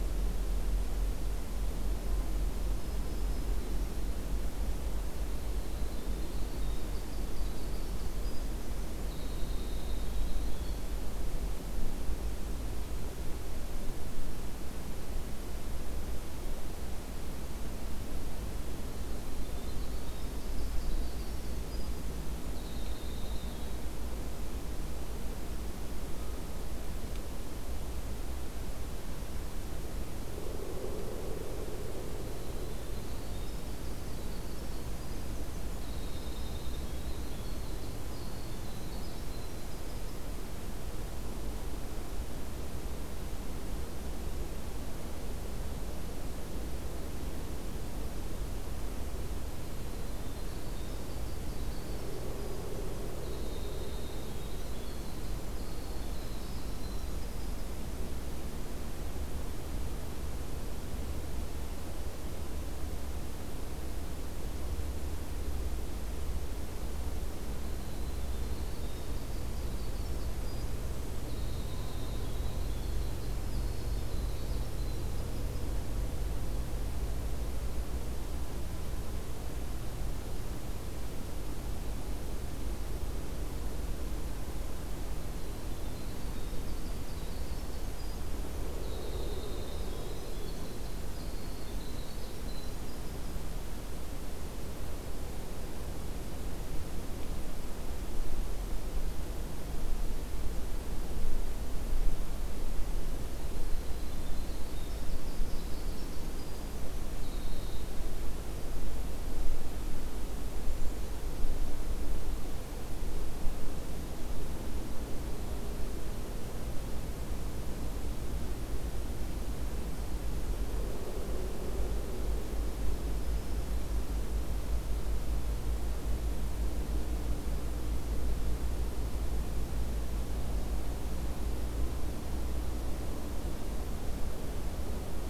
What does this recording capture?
Black-throated Green Warbler, Winter Wren